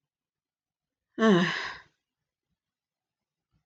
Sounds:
Sigh